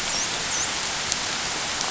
{"label": "biophony, dolphin", "recorder": "SoundTrap 500"}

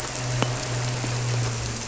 {"label": "anthrophony, boat engine", "recorder": "SoundTrap 300"}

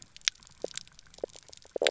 {"label": "biophony, knock croak", "recorder": "SoundTrap 300"}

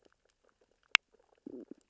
{"label": "biophony, stridulation", "recorder": "SoundTrap 600 or HydroMoth"}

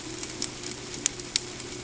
{"label": "ambient", "recorder": "HydroMoth"}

